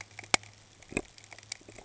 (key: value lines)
label: ambient
recorder: HydroMoth